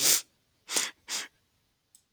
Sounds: Sniff